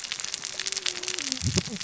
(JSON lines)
{"label": "biophony, cascading saw", "recorder": "SoundTrap 600 or HydroMoth"}